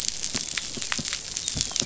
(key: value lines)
label: biophony, dolphin
recorder: SoundTrap 500